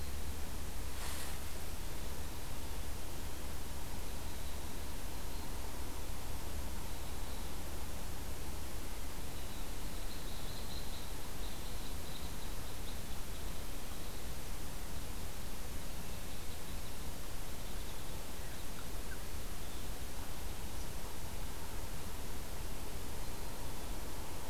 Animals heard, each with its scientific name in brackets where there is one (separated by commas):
Red Crossbill (Loxia curvirostra)